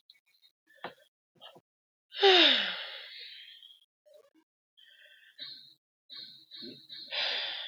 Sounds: Sigh